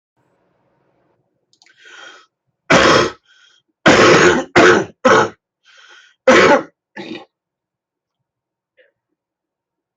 {"expert_labels": [{"quality": "good", "cough_type": "wet", "dyspnea": false, "wheezing": false, "stridor": false, "choking": false, "congestion": true, "nothing": false, "diagnosis": "obstructive lung disease", "severity": "severe"}], "age": 55, "gender": "male", "respiratory_condition": true, "fever_muscle_pain": false, "status": "symptomatic"}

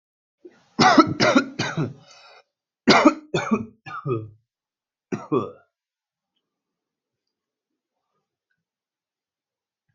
{"expert_labels": [{"quality": "good", "cough_type": "dry", "dyspnea": false, "wheezing": false, "stridor": false, "choking": false, "congestion": false, "nothing": true, "diagnosis": "upper respiratory tract infection", "severity": "mild"}], "age": 23, "gender": "male", "respiratory_condition": false, "fever_muscle_pain": false, "status": "healthy"}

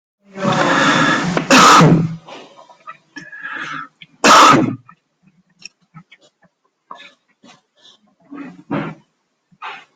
{"expert_labels": [{"quality": "poor", "cough_type": "unknown", "dyspnea": false, "wheezing": false, "stridor": false, "choking": false, "congestion": false, "nothing": true, "diagnosis": "healthy cough", "severity": "pseudocough/healthy cough"}], "age": 39, "gender": "male", "respiratory_condition": false, "fever_muscle_pain": false, "status": "healthy"}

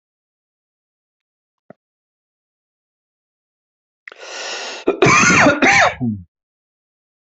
{"expert_labels": [{"quality": "good", "cough_type": "wet", "dyspnea": false, "wheezing": false, "stridor": false, "choking": false, "congestion": false, "nothing": true, "diagnosis": "obstructive lung disease", "severity": "mild"}], "age": 59, "gender": "male", "respiratory_condition": false, "fever_muscle_pain": false, "status": "symptomatic"}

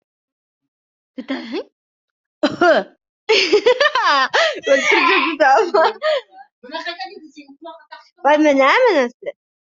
{"expert_labels": [{"quality": "poor", "cough_type": "unknown", "dyspnea": false, "wheezing": false, "stridor": false, "choking": false, "congestion": false, "nothing": true, "diagnosis": "healthy cough", "severity": "pseudocough/healthy cough"}], "age": 45, "gender": "female", "respiratory_condition": false, "fever_muscle_pain": true, "status": "COVID-19"}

